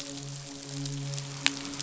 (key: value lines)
label: biophony, midshipman
recorder: SoundTrap 500